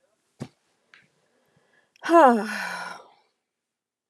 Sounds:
Sigh